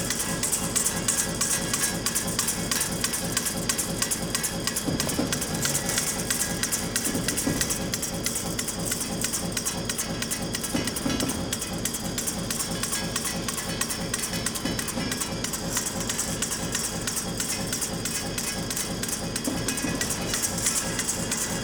Is the train waiting for people to board?
no